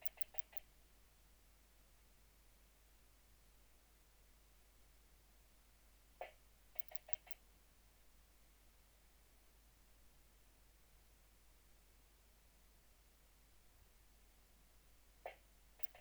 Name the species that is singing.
Poecilimon antalyaensis